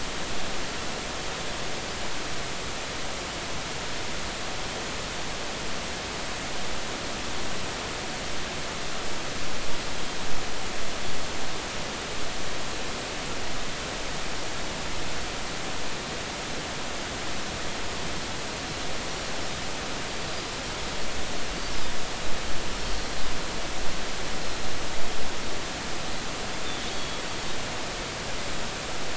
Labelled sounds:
21.5	21.8	Pacific white-sided dolphin, 4.5 to 4.7 kHz
26.9	27.2	Pacific white-sided dolphin, 3.2 to 3.4 kHz

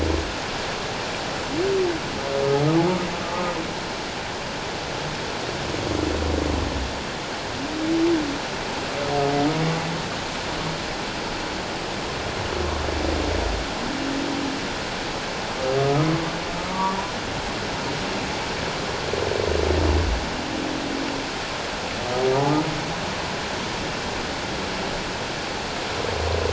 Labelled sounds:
15.8	16.1	humpback whale, 1.2 to 1.3 kHz
16.7	17.0	humpback whale, 0.91 to 1.2 kHz

